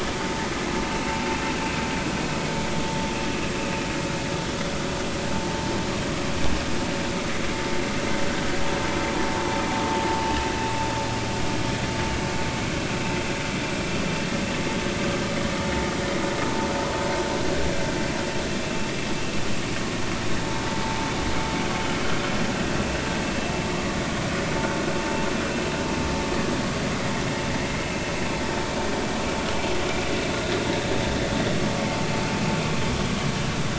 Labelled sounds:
0.9	1.1	vessel noise, 2.6 to 2.8 kHz
18.6	18.9	vessel noise, 2.6 to 2.8 kHz

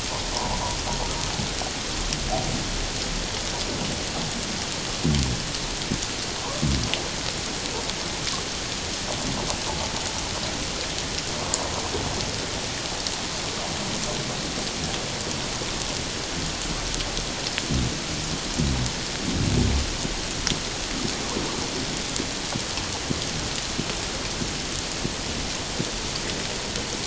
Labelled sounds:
0.3	0.6	humpback whale, 0.81 to 1.1 kHz

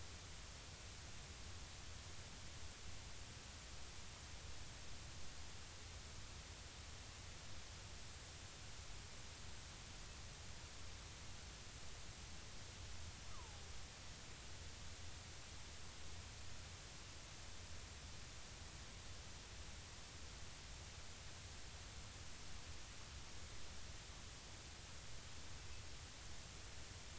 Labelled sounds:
13.3	13.6	killer whale, Bigg's (transient), 0.80 to 1.3 kHz

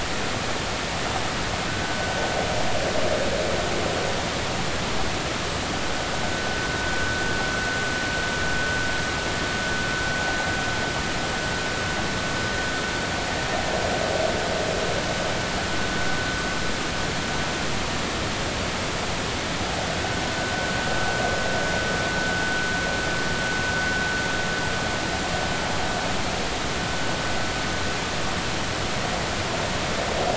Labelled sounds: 20.4	20.8	vessel noise, 1.5 to 1.6 kHz

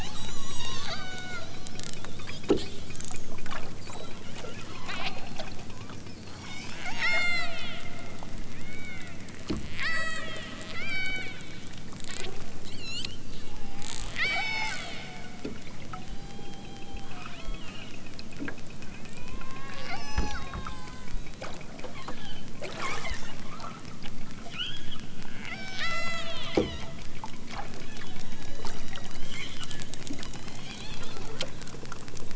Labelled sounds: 0.0	1.5	killer whale, southern Alaska resident, 0.92 to 8.0 kHz
4.9	5.1	killer whale, southern Alaska resident, 0.74 to 6.3 kHz
6.4	7.9	killer whale, southern Alaska resident, 0.64 to 8.0 kHz
8.6	9.2	killer whale, southern Alaska resident, 1.1 to 5.2 kHz
9.8	10.3	killer whale, southern Alaska resident, 0.83 to 8.0 kHz
10.7	11.3	killer whale, southern Alaska resident, 1.0 to 5.6 kHz
12.0	13.2	killer whale, southern Alaska resident, 0.92 to 8.0 kHz
13.6	15.3	killer whale, southern Alaska resident, 0.18 to 8.0 kHz
15.9	18.0	killer whale, southern Alaska resident, 0.41 to 8.0 kHz
18.9	21.2	killer whale, southern Alaska resident, 0.69 to 8.0 kHz
21.8	23.9	killer whale, southern Alaska resident, 0.55 to 7.7 kHz
24.5	25.0	killer whale, southern Alaska resident, 0.88 to 7.5 kHz
25.4	26.9	killer whale, southern Alaska resident, 0.46 to 8.0 kHz
27.8	31.3	killer whale, southern Alaska resident, 1.3 to 7.2 kHz

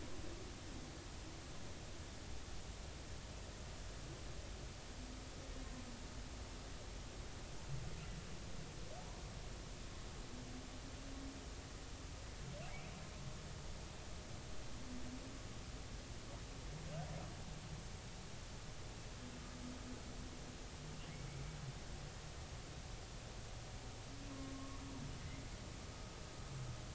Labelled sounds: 24.5	24.8	humpback whale, 1.0 to 1.2 kHz

